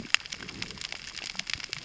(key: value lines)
label: biophony, cascading saw
recorder: SoundTrap 600 or HydroMoth